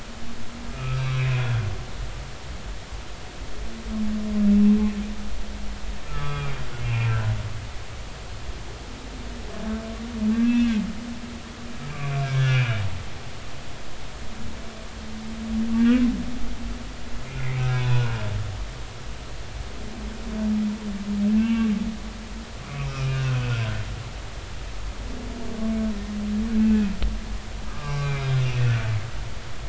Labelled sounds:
0.7	1.6	humpback whale, 1.2 to 3.4 kHz
6.1	7.3	humpback whale, 1.1 to 3.4 kHz
10.3	10.7	humpback whale, 1.6 to 2.7 kHz
11.8	12.8	humpback whale, 1.4 to 5.7 kHz
15.8	16.0	humpback whale, 1.5 to 1.8 kHz
17.7	18.2	humpback whale, 0.93 to 3.7 kHz
21.4	21.7	humpback whale, 2.2 to 2.8 kHz
22.7	23.5	humpback whale, 1.2 to 2.6 kHz
27.6	28.5	humpback whale, 1.0 to 3.8 kHz

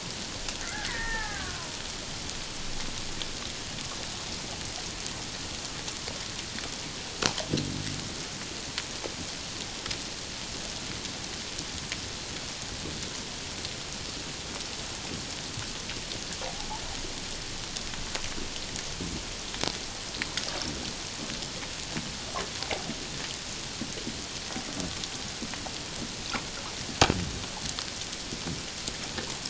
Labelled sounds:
0.6	1.7	killer whale, Bigg's (transient), 0.78 to 2.2 kHz

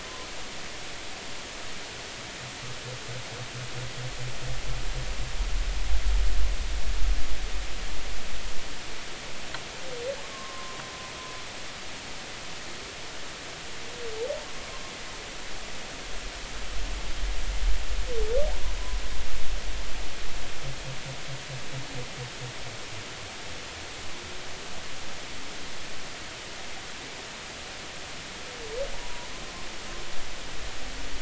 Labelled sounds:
10.2	10.8	humpback whale, 0.99 to 1.2 kHz
28.9	29.3	humpback whale, 0.80 to 1.1 kHz

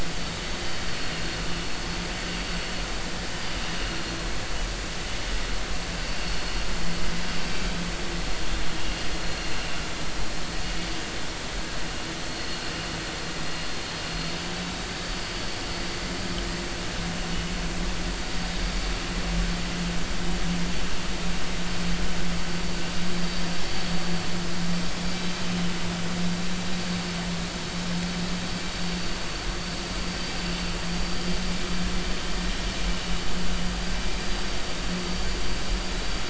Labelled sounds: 3.8	4.2	vessel noise, 4.2 to 4.4 kHz
6.2	7.6	vessel noise, 4.3 to 5.5 kHz
9.2	9.6	vessel noise, 4.1 to 4.3 kHz
12.2	12.6	vessel noise, 4.3 to 4.4 kHz
14.9	15.3	vessel noise, 4.4 to 4.6 kHz
24.8	25.1	vessel noise, 5.3 to 5.5 kHz
30.1	30.3	vessel noise, 4.6 to 4.8 kHz

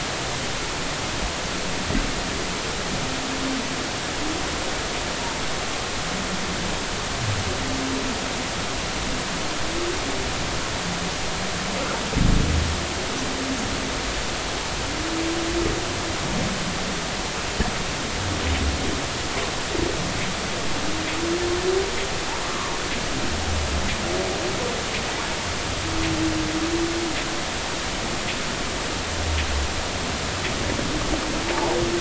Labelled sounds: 22.4	22.7	humpback whale, 0.99 to 1.3 kHz
31.5	31.8	humpback whale, 0.80 to 1.0 kHz

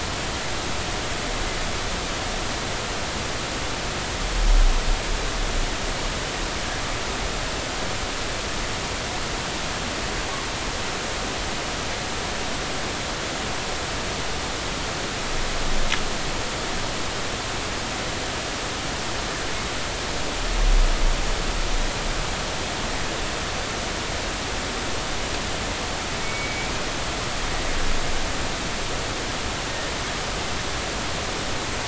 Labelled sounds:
26.2	26.7	killer whale, northern resident, 2.2 to 2.3 kHz

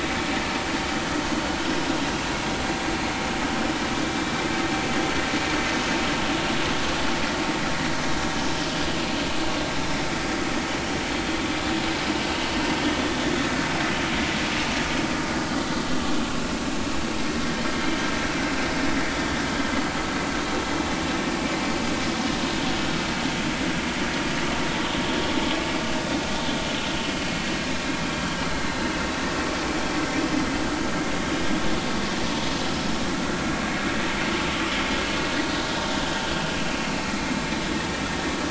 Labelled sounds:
13.0	13.2	vessel noise, 3.4 to 3.6 kHz

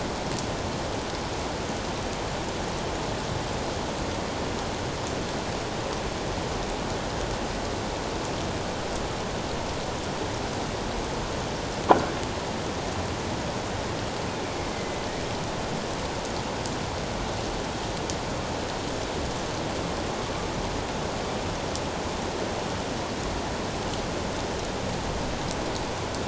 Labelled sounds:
14.7	15.0	killer whale, northern resident, A clan, AA subclan, A04 pod, 2.0 to 2.2 kHz

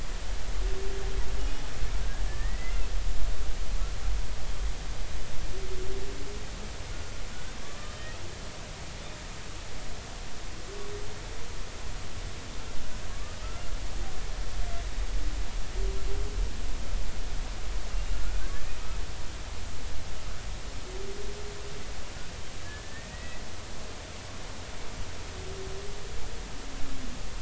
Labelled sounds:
1.4	2.8	humpback whale, 1.7 to 2.9 kHz
7.9	8.2	humpback whale, 1.8 to 2.0 kHz
13.1	13.4	humpback whale, 1.1 to 1.3 kHz
17.9	18.5	humpback whale, 1.2 to 2.8 kHz
22.6	23.4	humpback whale, 1.6 to 2.0 kHz

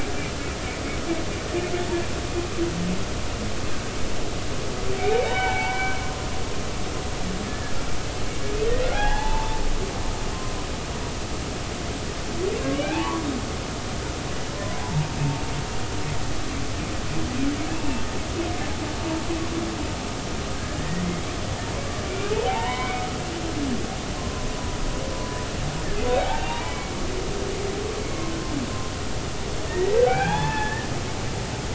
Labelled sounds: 5.2	6.0	humpback whale, 0.80 to 3.1 kHz
7.5	7.7	humpback whale, 1.6 to 1.8 kHz
8.9	9.6	humpback whale, 0.80 to 3.6 kHz
12.8	13.3	humpback whale, 0.80 to 2.7 kHz
14.5	15.1	humpback whale, 0.80 to 1.1 kHz
17.8	18.0	humpback whale, 0.86 to 0.99 kHz
20.6	21.0	humpback whale, 1.5 to 2.0 kHz
22.5	23.1	humpback whale, 0.80 to 3.8 kHz
24.5	24.8	humpback whale, 0.93 to 1.0 kHz
26.1	27.0	humpback whale, 0.80 to 2.9 kHz
28.0	28.4	humpback whale, 1.0 to 2.2 kHz
29.7	30.9	humpback whale, 0.80 to 3.6 kHz

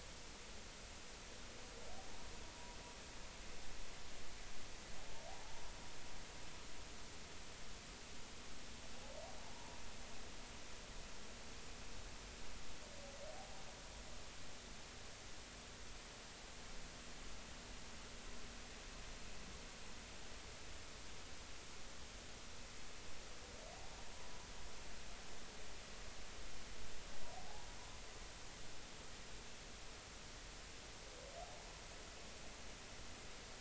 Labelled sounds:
5.3	5.5	humpback whale, 0.80 to 0.93 kHz
9.5	9.8	humpback whale, 0.86 to 1.1 kHz
27.3	27.7	humpback whale, 0.80 to 0.99 kHz

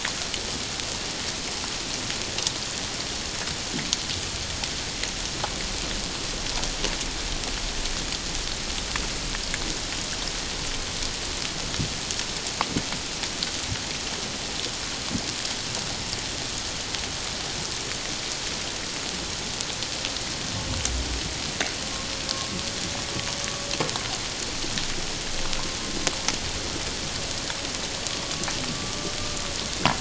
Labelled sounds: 28.7	28.9	humpback whale, 1.1 to 1.2 kHz

